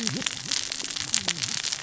{"label": "biophony, cascading saw", "recorder": "SoundTrap 600 or HydroMoth"}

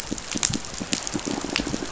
{"label": "biophony, pulse", "recorder": "SoundTrap 500"}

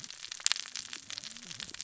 {"label": "biophony, cascading saw", "recorder": "SoundTrap 600 or HydroMoth"}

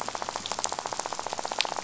{"label": "biophony, rattle", "recorder": "SoundTrap 500"}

